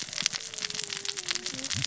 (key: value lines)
label: biophony, cascading saw
recorder: SoundTrap 600 or HydroMoth